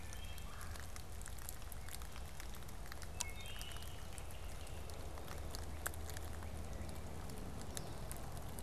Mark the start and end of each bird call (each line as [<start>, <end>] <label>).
[0.00, 4.36] Wood Thrush (Hylocichla mustelina)
[0.00, 8.16] Blue-headed Vireo (Vireo solitarius)
[0.46, 0.86] Red-bellied Woodpecker (Melanerpes carolinus)